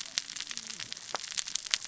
{"label": "biophony, cascading saw", "recorder": "SoundTrap 600 or HydroMoth"}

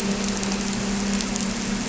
{"label": "anthrophony, boat engine", "recorder": "SoundTrap 300"}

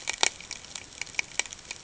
{"label": "ambient", "recorder": "HydroMoth"}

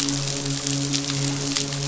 {"label": "biophony, midshipman", "recorder": "SoundTrap 500"}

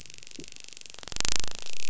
{"label": "biophony, dolphin", "recorder": "SoundTrap 500"}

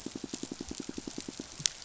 {"label": "biophony, pulse", "recorder": "SoundTrap 500"}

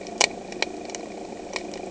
{"label": "anthrophony, boat engine", "recorder": "HydroMoth"}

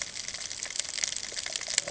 {"label": "ambient", "recorder": "HydroMoth"}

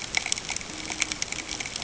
{"label": "ambient", "recorder": "HydroMoth"}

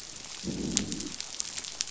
{"label": "biophony, growl", "recorder": "SoundTrap 500"}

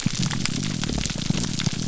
{"label": "biophony, grouper groan", "recorder": "SoundTrap 300"}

